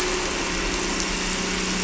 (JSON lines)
{"label": "anthrophony, boat engine", "recorder": "SoundTrap 300"}